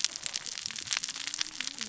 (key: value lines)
label: biophony, cascading saw
recorder: SoundTrap 600 or HydroMoth